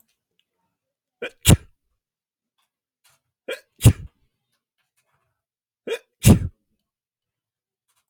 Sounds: Sneeze